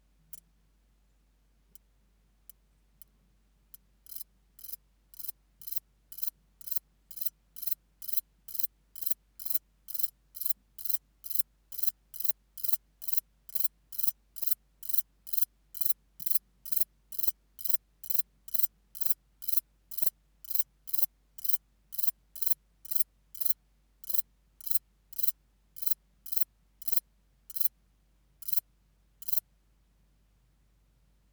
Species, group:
Metrioptera brachyptera, Orthoptera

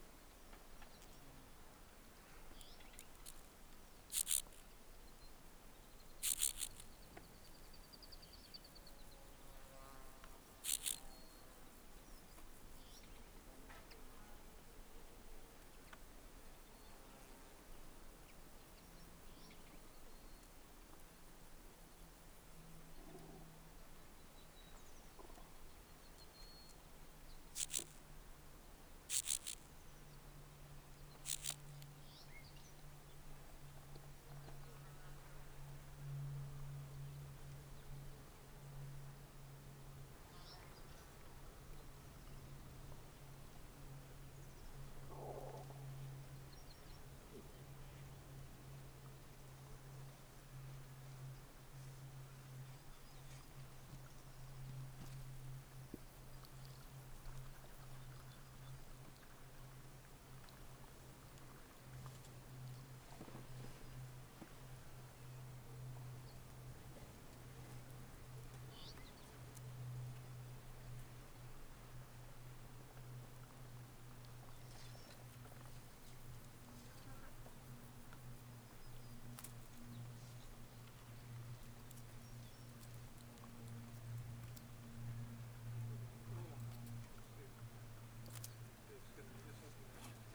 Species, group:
Chorthippus vagans, Orthoptera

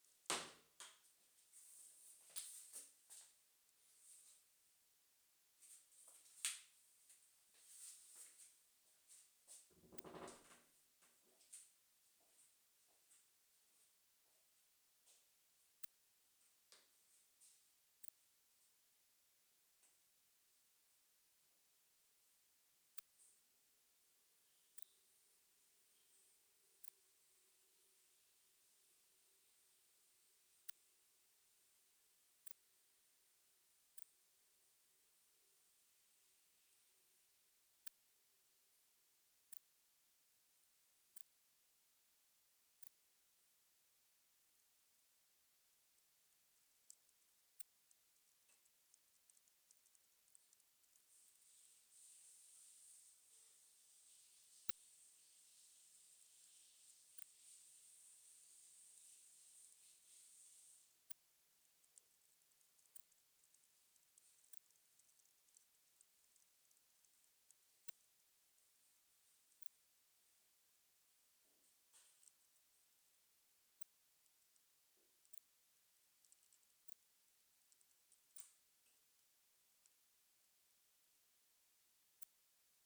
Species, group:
Poecilimon hamatus, Orthoptera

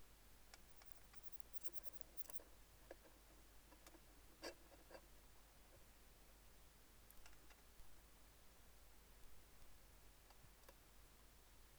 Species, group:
Odontura stenoxypha, Orthoptera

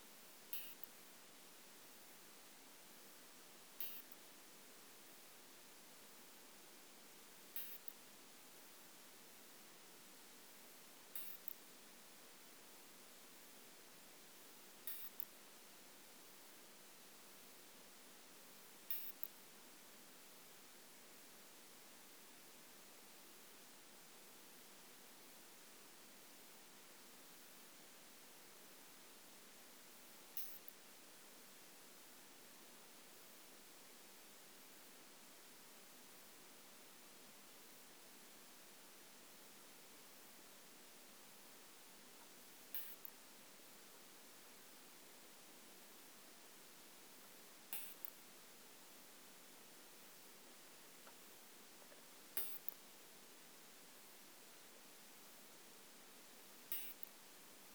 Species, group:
Isophya modestior, Orthoptera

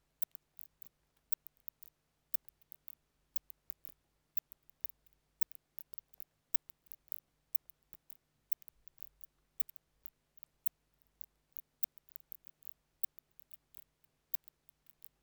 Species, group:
Leptophyes laticauda, Orthoptera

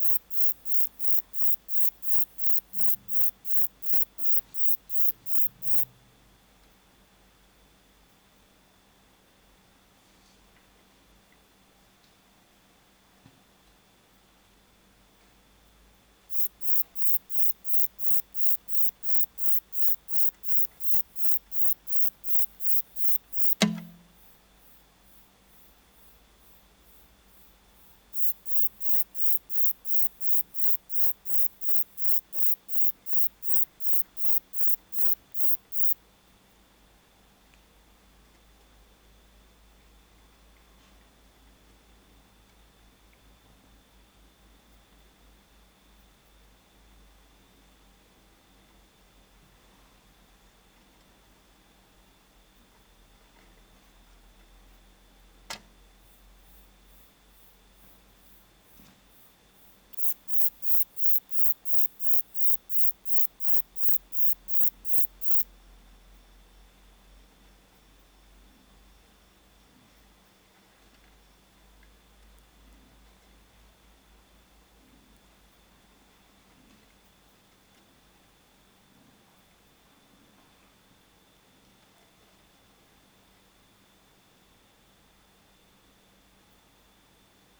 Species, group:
Uromenus brevicollis, Orthoptera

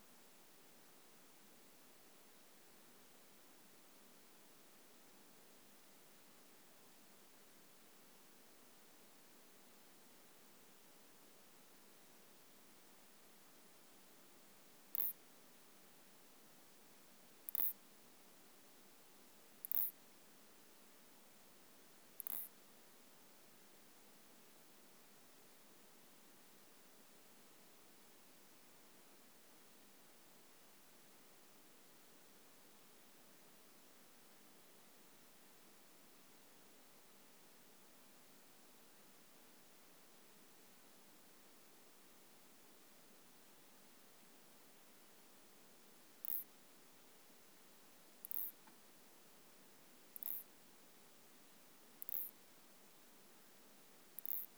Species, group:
Isophya clara, Orthoptera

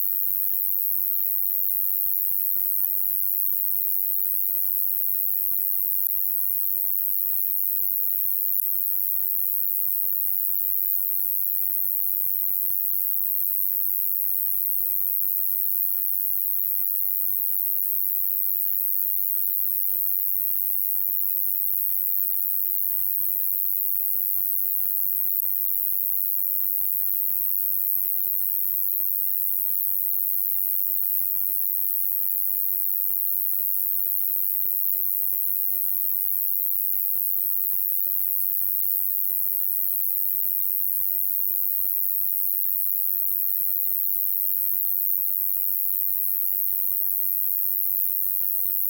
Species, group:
Ruspolia nitidula, Orthoptera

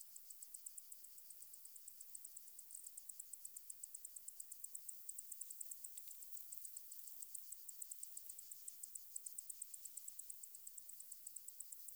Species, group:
Decticus albifrons, Orthoptera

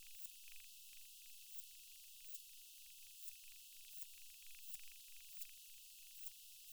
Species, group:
Poecilimon elegans, Orthoptera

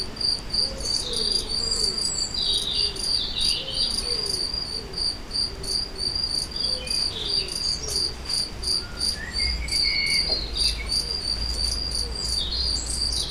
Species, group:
Gryllus campestris, Orthoptera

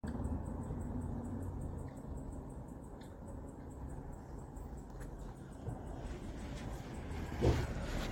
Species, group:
Tettigonia viridissima, Orthoptera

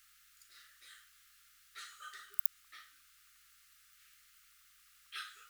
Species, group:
Poecilimon deplanatus, Orthoptera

